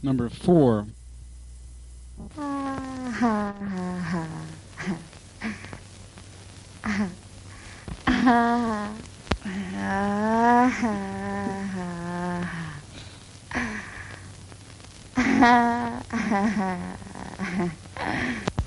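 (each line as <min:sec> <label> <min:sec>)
0:00.0 A man is making an announcement through a microphone. 0:01.1
0:02.0 Radio crackling repeatedly. 0:18.7
0:02.0 A woman laughs smoothly on the radio. 0:06.4
0:06.7 A woman making noises similar to those coming from a radio. 0:13.1
0:13.5 A woman laughs smoothly on the radio. 0:18.7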